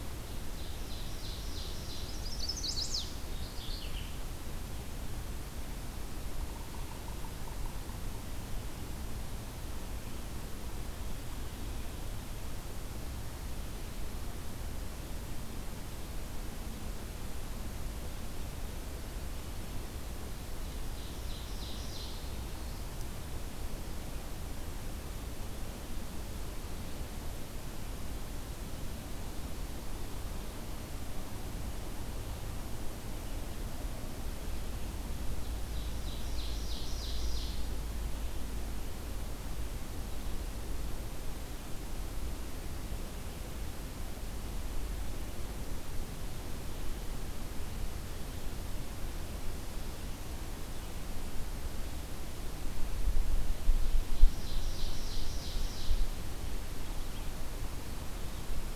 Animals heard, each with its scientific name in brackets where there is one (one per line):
Chestnut-sided Warbler (Setophaga pensylvanica)
Ovenbird (Seiurus aurocapilla)
Mourning Warbler (Geothlypis philadelphia)